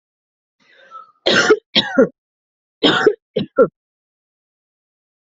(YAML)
expert_labels:
- quality: good
  cough_type: wet
  dyspnea: false
  wheezing: false
  stridor: false
  choking: false
  congestion: false
  nothing: true
  diagnosis: lower respiratory tract infection
  severity: mild
age: 36
gender: female
respiratory_condition: true
fever_muscle_pain: true
status: COVID-19